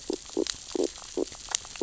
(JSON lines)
{"label": "biophony, stridulation", "recorder": "SoundTrap 600 or HydroMoth"}